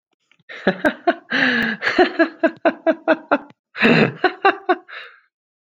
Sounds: Laughter